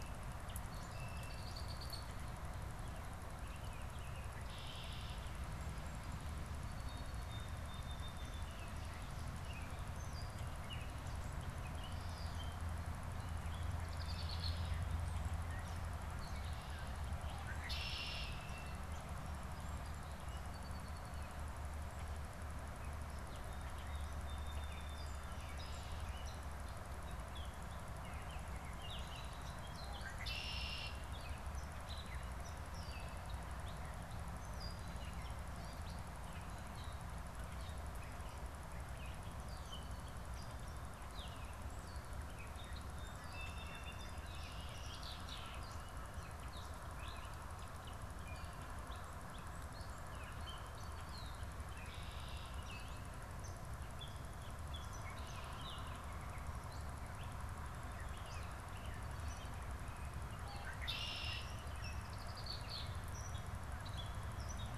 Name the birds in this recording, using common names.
Gray Catbird, Red-winged Blackbird, Song Sparrow, unidentified bird